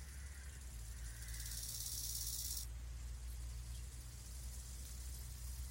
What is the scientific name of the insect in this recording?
Chorthippus biguttulus